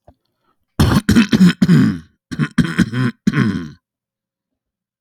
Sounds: Cough